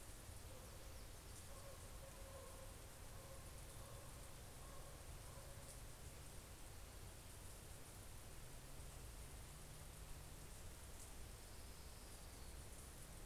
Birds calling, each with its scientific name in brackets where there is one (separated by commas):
Orange-crowned Warbler (Leiothlypis celata)